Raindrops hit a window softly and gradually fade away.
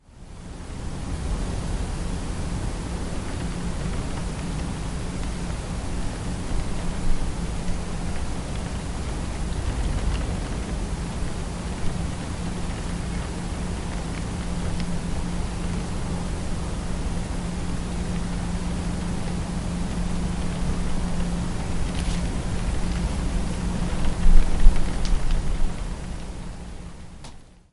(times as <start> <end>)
19.9 27.6